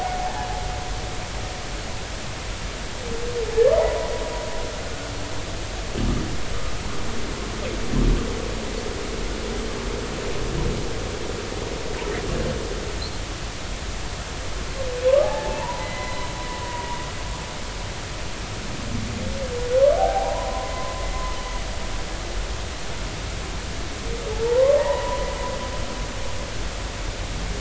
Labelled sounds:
15.2	16.9	humpback whale, 0.80 to 4.1 kHz
20.0	21.1	humpback whale, 0.80 to 1.1 kHz
24.3	25.3	humpback whale, 0.80 to 2.0 kHz

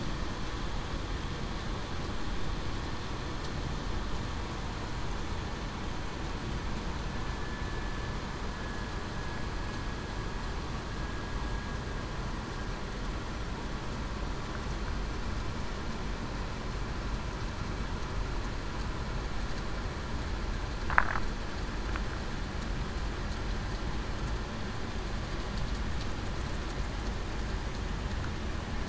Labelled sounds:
8.5	8.9	vessel noise, 1.66 to 1.71 kHz

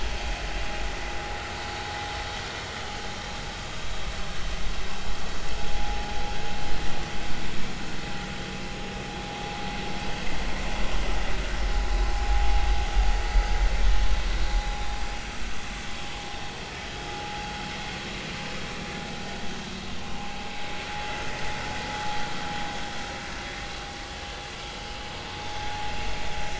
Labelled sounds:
5.7	6.0	vessel noise, 0.80 to 0.86 kHz
7.5	7.8	vessel noise, 2.2 to 2.4 kHz
24.1	24.4	vessel noise, 3.0 to 3.1 kHz

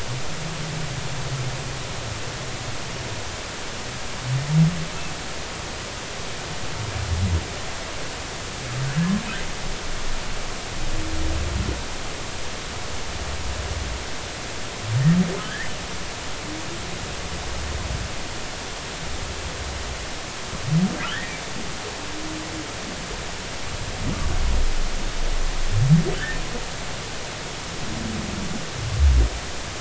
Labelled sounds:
15.5	15.7	humpback whale, 1.5 to 2.1 kHz
21.0	21.3	humpback whale, 1.2 to 2.0 kHz
26.2	26.4	humpback whale, 1.5 to 1.9 kHz

